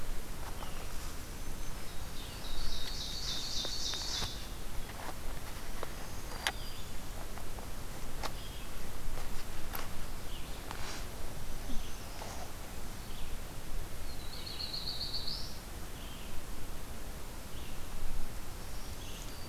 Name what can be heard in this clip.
Red-eyed Vireo, Black-throated Green Warbler, Ovenbird, Black-throated Blue Warbler